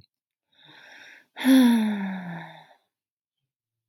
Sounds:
Sigh